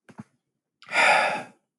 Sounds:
Sigh